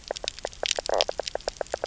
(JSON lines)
{"label": "biophony, knock croak", "recorder": "SoundTrap 300"}